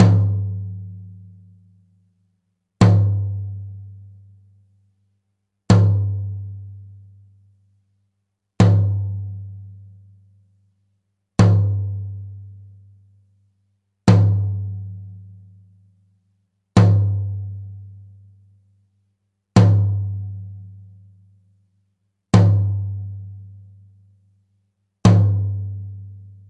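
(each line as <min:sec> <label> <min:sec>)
0:00.0 A drum is hit loudly. 0:01.1
0:02.7 A drum is hit loudly. 0:03.8
0:05.7 A drum is hit loudly. 0:06.7
0:08.5 A drum is hit loudly. 0:09.6
0:11.3 A drum is hit loudly. 0:12.4
0:14.0 A drum is hit loudly. 0:15.1
0:16.7 A drum is hit loudly. 0:17.8
0:19.5 A drum is hit loudly. 0:20.6
0:22.2 A drum is hit loudly. 0:23.3
0:25.0 A drum is hit loudly. 0:26.1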